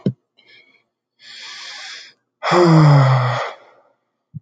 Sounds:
Sigh